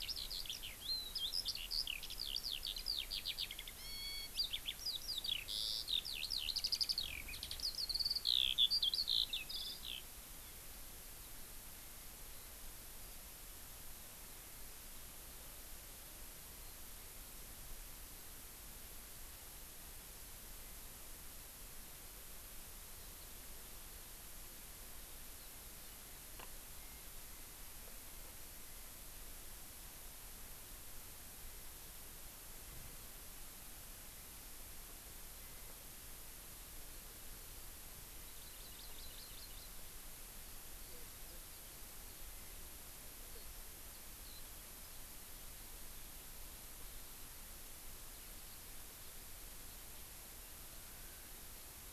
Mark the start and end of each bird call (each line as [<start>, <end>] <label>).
[0.00, 10.07] Eurasian Skylark (Alauda arvensis)
[38.27, 39.67] Hawaii Amakihi (Chlorodrepanis virens)